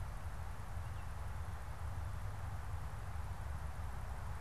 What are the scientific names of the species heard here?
Icterus galbula